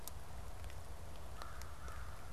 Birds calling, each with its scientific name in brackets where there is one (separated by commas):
American Crow (Corvus brachyrhynchos)